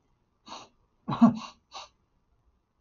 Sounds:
Sniff